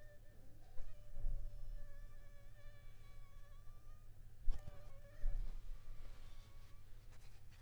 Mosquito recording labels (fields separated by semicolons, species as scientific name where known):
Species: Anopheles funestus s.s.; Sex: female; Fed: unfed; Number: one; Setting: cup